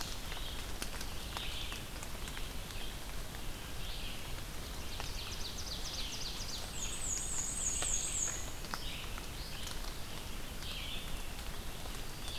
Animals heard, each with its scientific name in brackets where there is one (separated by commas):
Red-eyed Vireo (Vireo olivaceus), Ovenbird (Seiurus aurocapilla), Black-and-white Warbler (Mniotilta varia)